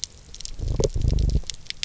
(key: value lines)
label: biophony
recorder: SoundTrap 300